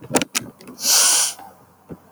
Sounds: Sniff